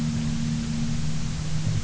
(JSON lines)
{"label": "anthrophony, boat engine", "recorder": "SoundTrap 300"}